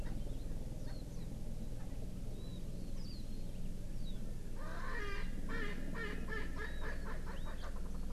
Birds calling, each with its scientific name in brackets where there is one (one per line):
Erckel's Francolin (Pternistis erckelii)
Warbling White-eye (Zosterops japonicus)